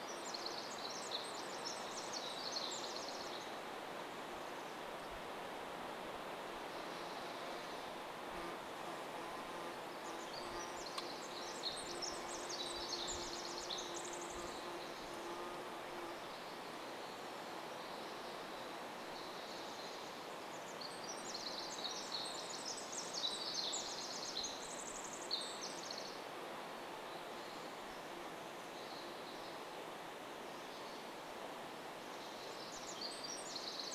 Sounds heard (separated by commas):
Chestnut-backed Chickadee call, insect buzz, Pacific Wren song, unidentified sound